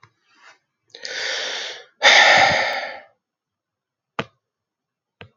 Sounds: Sigh